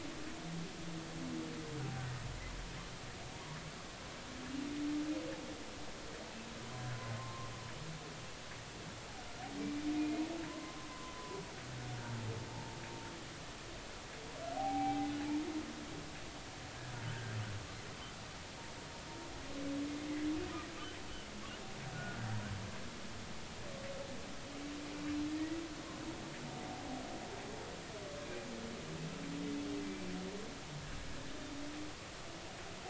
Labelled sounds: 7.2	7.5	humpback whale, 0.99 to 1.2 kHz
9.9	10.2	humpback whale, 2.4 to 2.6 kHz
10.5	11.4	humpback whale, 0.96 to 1.2 kHz
12.0	12.3	humpback whale, 0.83 to 0.96 kHz
14.5	15.1	humpback whale, 0.80 to 0.86 kHz
17.1	17.4	humpback whale, 1.4 to 1.7 kHz
21.9	22.2	humpback whale, 1.4 to 1.5 kHz

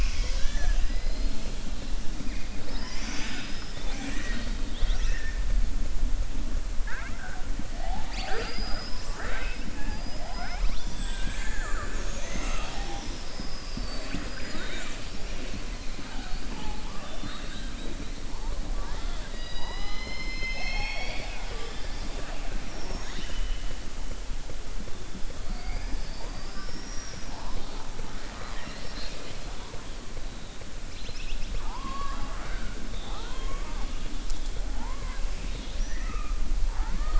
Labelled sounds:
7.7	9.6	killer whale, southern resident, 0.42 to 7.4 kHz
11.1	12.0	killer whale, southern resident, 0.61 to 3.8 kHz
17.0	17.7	killer whale, southern resident, 2.7 to 4.3 kHz
18.9	22.2	killer whale, southern resident, 0.48 to 6.4 kHz
28.0	29.4	killer whale, southern resident, 0.61 to 5.5 kHz

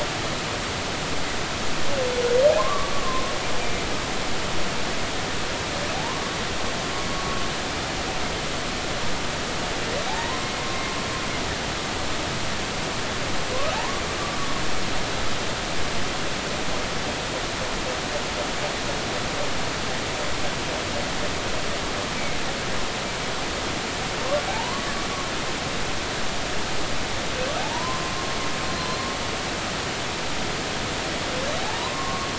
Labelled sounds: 2.6	3.3	humpback whale, 0.96 to 1.2 kHz
5.9	6.2	humpback whale, 0.80 to 1.1 kHz
10.1	10.5	humpback whale, 0.80 to 1.1 kHz
13.7	14.0	humpback whale, 0.80 to 1.2 kHz
24.5	24.9	humpback whale, 0.80 to 1.2 kHz
27.6	28.1	humpback whale, 0.80 to 1.1 kHz
28.7	29.1	humpback whale, 4.1 to 4.3 kHz
31.6	32.3	humpback whale, 0.80 to 1.2 kHz

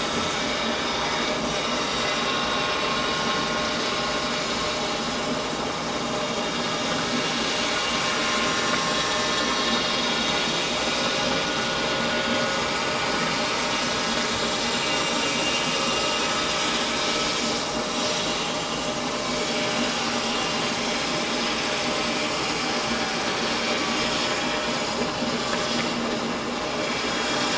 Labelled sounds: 4.5	4.8	vessel noise, 5.4 to 5.5 kHz

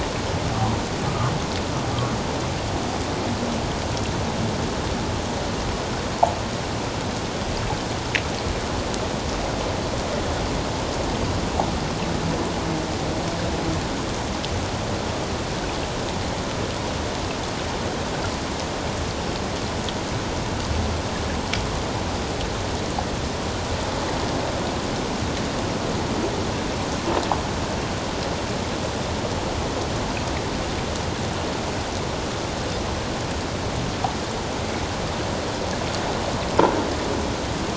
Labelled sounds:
1.1	1.3	humpback whale, 1.0 to 1.3 kHz

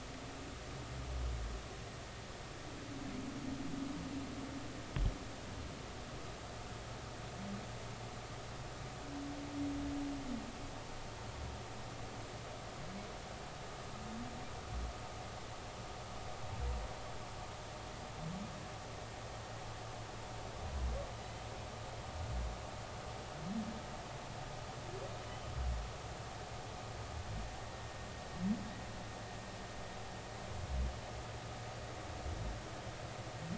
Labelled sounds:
25.2	25.5	humpback whale, 2.9 to 3.1 kHz

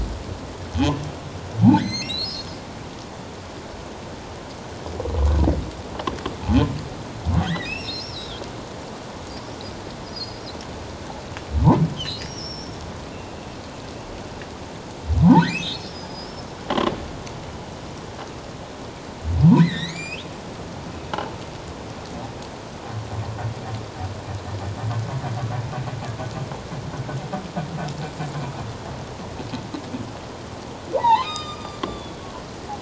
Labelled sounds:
1.7	2.5	humpback whale, 1.4 to 6.6 kHz
7.4	8.4	humpback whale, 1.4 to 5.6 kHz
10.1	10.4	humpback whale, 4.8 to 5.1 kHz
12.0	12.8	humpback whale, 2.8 to 6.1 kHz
15.2	16.5	humpback whale, 0.78 to 5.4 kHz
19.6	20.2	humpback whale, 1.7 to 7.5 kHz
30.9	32.3	humpback whale, 0.78 to 7.5 kHz

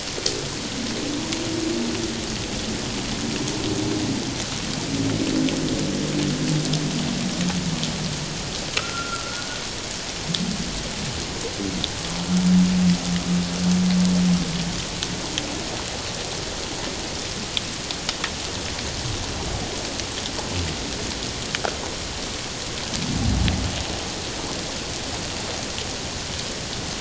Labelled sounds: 8.8	9.5	humpback whale, 1.2 to 1.5 kHz

